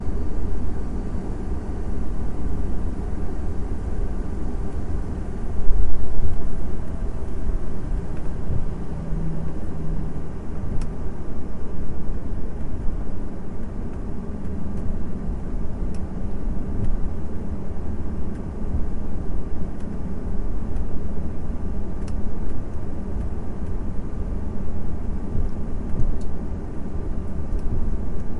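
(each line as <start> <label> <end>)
0.0 An airplane engine is rumbling. 5.6
0.0 Ambient aircraft idle noises with a low-frequency hum. 28.4
5.6 A low-frequency distant thump. 6.8
10.7 A clear, quiet crackle. 11.2
15.0 Distant crackling repeats in an inconsistent pattern. 23.9
25.4 Two low-pitched, low-frequency thumps in a row. 26.5
27.5 Quiet crackling sound in the distance. 28.0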